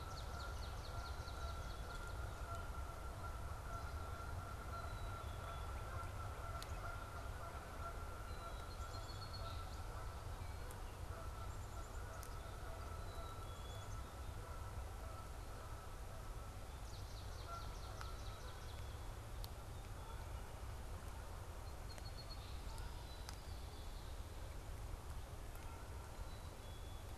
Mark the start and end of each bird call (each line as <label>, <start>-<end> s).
Song Sparrow (Melospiza melodia), 0.0-1.2 s
Swamp Sparrow (Melospiza georgiana), 0.0-2.2 s
Canada Goose (Branta canadensis), 0.0-9.9 s
Black-capped Chickadee (Poecile atricapillus), 4.3-5.9 s
Northern Cardinal (Cardinalis cardinalis), 5.0-7.9 s
Black-capped Chickadee (Poecile atricapillus), 8.2-9.2 s
Song Sparrow (Melospiza melodia), 8.3-10.0 s
Canada Goose (Branta canadensis), 10.8-20.6 s
Black-capped Chickadee (Poecile atricapillus), 12.9-13.9 s
Swamp Sparrow (Melospiza georgiana), 16.5-19.0 s
Song Sparrow (Melospiza melodia), 21.4-23.6 s
Black-capped Chickadee (Poecile atricapillus), 26.0-27.1 s